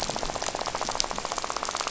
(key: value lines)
label: biophony, rattle
recorder: SoundTrap 500